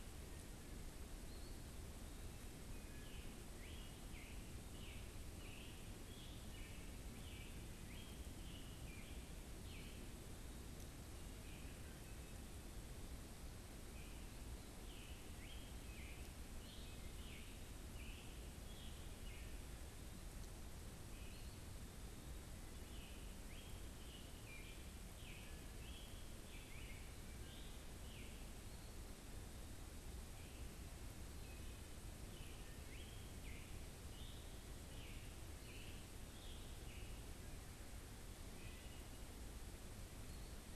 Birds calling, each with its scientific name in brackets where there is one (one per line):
Scarlet Tanager (Piranga olivacea)
Wood Thrush (Hylocichla mustelina)